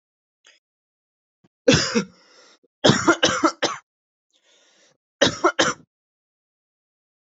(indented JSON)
{
  "expert_labels": [
    {
      "quality": "good",
      "cough_type": "wet",
      "dyspnea": false,
      "wheezing": false,
      "stridor": false,
      "choking": false,
      "congestion": false,
      "nothing": true,
      "diagnosis": "lower respiratory tract infection",
      "severity": "mild"
    }
  ]
}